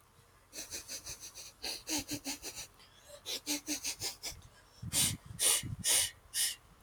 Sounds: Sniff